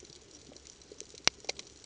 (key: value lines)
label: ambient
recorder: HydroMoth